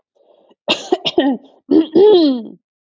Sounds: Throat clearing